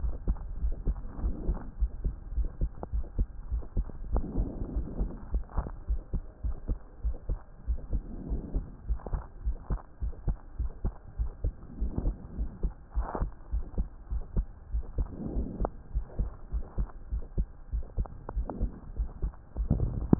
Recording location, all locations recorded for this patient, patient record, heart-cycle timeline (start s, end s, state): pulmonary valve (PV)
aortic valve (AV)+pulmonary valve (PV)+tricuspid valve (TV)+mitral valve (MV)
#Age: Child
#Sex: Female
#Height: 133.0 cm
#Weight: 24.9 kg
#Pregnancy status: False
#Murmur: Absent
#Murmur locations: nan
#Most audible location: nan
#Systolic murmur timing: nan
#Systolic murmur shape: nan
#Systolic murmur grading: nan
#Systolic murmur pitch: nan
#Systolic murmur quality: nan
#Diastolic murmur timing: nan
#Diastolic murmur shape: nan
#Diastolic murmur grading: nan
#Diastolic murmur pitch: nan
#Diastolic murmur quality: nan
#Outcome: Normal
#Campaign: 2015 screening campaign
0.00	0.40	unannotated
0.40	0.60	diastole
0.60	0.76	S1
0.76	0.86	systole
0.86	0.98	S2
0.98	1.20	diastole
1.20	1.34	S1
1.34	1.46	systole
1.46	1.58	S2
1.58	1.78	diastole
1.78	1.90	S1
1.90	2.02	systole
2.02	2.16	S2
2.16	2.36	diastole
2.36	2.50	S1
2.50	2.60	systole
2.60	2.70	S2
2.70	2.94	diastole
2.94	3.06	S1
3.06	3.14	systole
3.14	3.28	S2
3.28	3.50	diastole
3.50	3.64	S1
3.64	3.76	systole
3.76	3.86	S2
3.86	4.10	diastole
4.10	4.24	S1
4.24	4.36	systole
4.36	4.48	S2
4.48	4.74	diastole
4.74	4.86	S1
4.86	4.98	systole
4.98	5.12	S2
5.12	5.32	diastole
5.32	5.46	S1
5.46	5.56	systole
5.56	5.66	S2
5.66	5.90	diastole
5.90	6.02	S1
6.02	6.12	systole
6.12	6.22	S2
6.22	6.42	diastole
6.42	6.56	S1
6.56	6.68	systole
6.68	6.78	S2
6.78	7.02	diastole
7.02	7.16	S1
7.16	7.28	systole
7.28	7.38	S2
7.38	7.68	diastole
7.68	7.80	S1
7.80	7.92	systole
7.92	8.02	S2
8.02	8.26	diastole
8.26	8.40	S1
8.40	8.54	systole
8.54	8.64	S2
8.64	8.88	diastole
8.88	8.98	S1
8.98	9.12	systole
9.12	9.22	S2
9.22	9.44	diastole
9.44	9.56	S1
9.56	9.69	systole
9.69	9.80	S2
9.80	10.02	diastole
10.02	10.14	S1
10.14	10.26	systole
10.26	10.38	S2
10.38	10.58	diastole
10.58	10.72	S1
10.72	10.82	systole
10.82	10.92	S2
10.92	11.18	diastole
11.18	11.32	S1
11.32	11.42	systole
11.42	11.52	S2
11.52	11.80	diastole
11.80	11.92	S1
11.92	12.02	systole
12.02	12.14	S2
12.14	12.38	diastole
12.38	12.50	S1
12.50	12.62	systole
12.62	12.72	S2
12.72	12.95	diastole
12.95	13.06	S1
13.06	13.20	systole
13.20	13.30	S2
13.30	13.52	diastole
13.52	13.64	S1
13.64	13.74	systole
13.74	13.88	S2
13.88	14.10	diastole
14.10	14.24	S1
14.24	14.35	systole
14.35	14.45	S2
14.45	14.72	diastole
14.72	14.86	S1
14.86	14.96	systole
14.96	15.08	S2
15.08	15.32	diastole
15.32	15.46	S1
15.46	15.60	systole
15.60	15.70	S2
15.70	15.93	diastole
15.93	16.06	S1
16.06	16.17	systole
16.17	16.30	S2
16.30	16.51	diastole
16.51	16.64	S1
16.64	16.76	systole
16.76	16.88	S2
16.88	17.10	diastole
17.10	17.22	S1
17.22	17.34	systole
17.34	17.48	S2
17.48	17.71	diastole
17.71	17.86	S1
17.86	17.96	systole
17.96	18.08	S2
18.08	18.34	diastole
18.34	18.48	S1
18.48	18.60	systole
18.60	18.72	S2
18.72	18.97	diastole
18.97	19.10	S1
19.10	19.22	systole
19.22	19.32	S2
19.32	19.58	diastole
19.58	20.19	unannotated